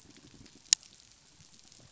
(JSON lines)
{"label": "biophony", "recorder": "SoundTrap 500"}